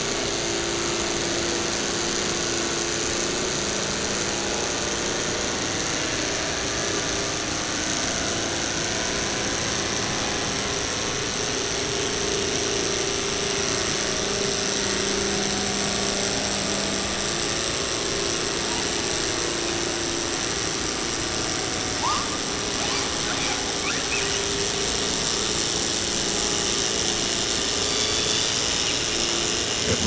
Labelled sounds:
22.7	24.4	killer whale, 0.43 to 5.3 kHz
27.7	29.1	killer whale, 0.67 to 5.0 kHz

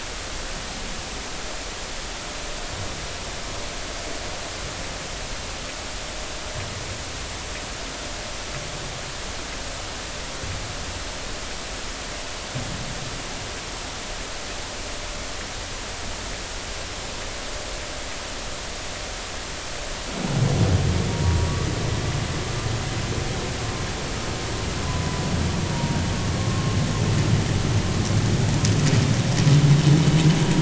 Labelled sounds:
21.1	21.4	vessel noise, 0.90 to 0.99 kHz
25.7	26.0	vessel noise, 0.86 to 0.99 kHz
26.4	26.8	vessel noise, 1.0 to 1.1 kHz

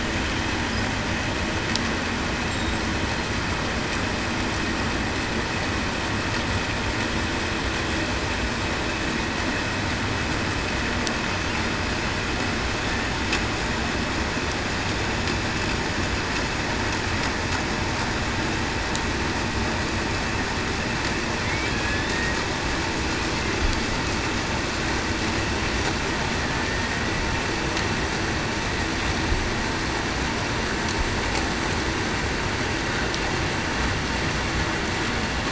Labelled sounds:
21.7	22.1	killer whale, Bigg's (transient), 1.7 to 1.8 kHz

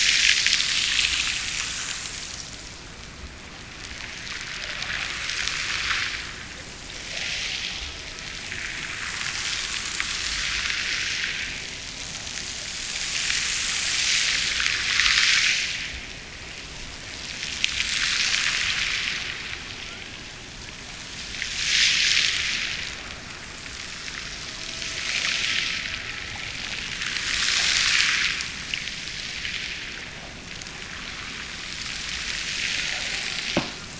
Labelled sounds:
24.2	26.5	killer whale, Bigg's (transient), Gulf of Alaska transient, 0.43 to 1.6 kHz

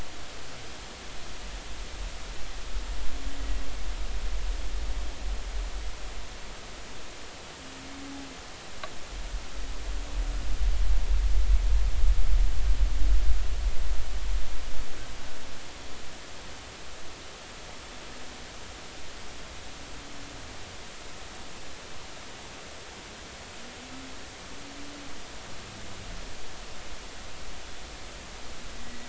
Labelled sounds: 28.8	29.0	humpback whale, 1.9 to 2.1 kHz

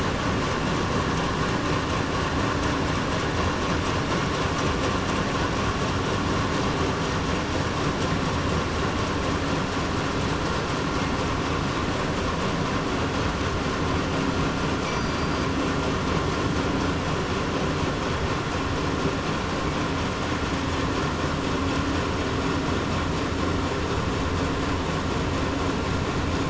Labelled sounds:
14.9	15.3	killer whale, southern resident, 4.6 to 4.8 kHz

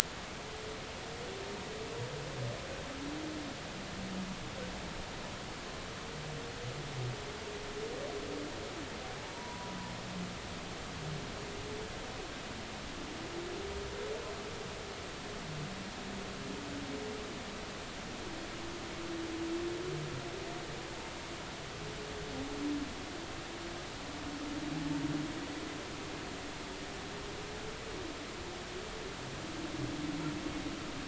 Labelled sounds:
9.3	9.7	humpback whale, 0.90 to 1.0 kHz

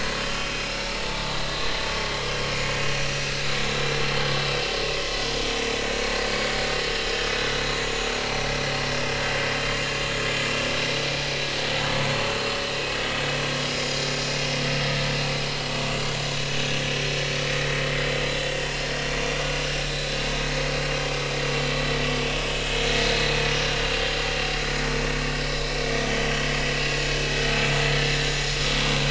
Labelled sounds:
1.0	1.3	vessel noise, 0.83 to 0.96 kHz
4.2	4.5	vessel noise, 3.36 to 3.42 kHz
5.8	6.5	vessel noise, 2.2 to 4.9 kHz
13.8	14.1	vessel noise, 6.9 to 7.0 kHz
19.2	19.4	vessel noise, 2.4 to 2.5 kHz
19.8	20.1	vessel noise, 3.6 to 4.1 kHz
26.1	26.5	vessel noise, 2.9 to 3.3 kHz
27.9	28.3	vessel noise, 1.7 to 1.8 kHz

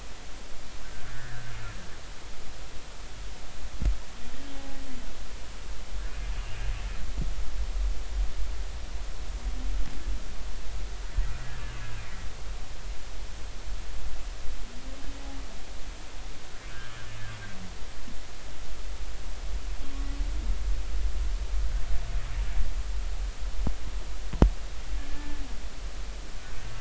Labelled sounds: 1.1	1.5	humpback whale, 1.4 to 1.9 kHz
25.1	25.4	humpback whale, 1.7 to 1.8 kHz

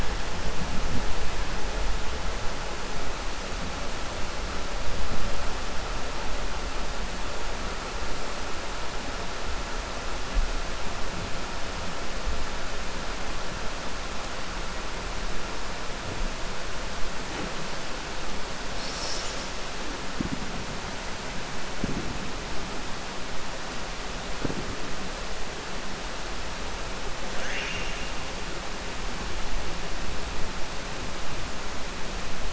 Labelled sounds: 27.3	28.1	killer whale, 0.69 to 3.6 kHz

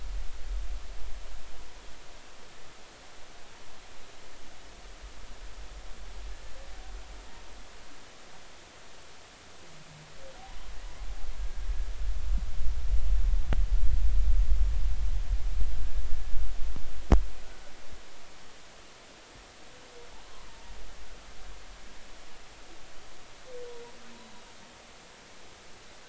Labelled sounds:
24.2	24.5	humpback whale, 3.7 to 4.0 kHz

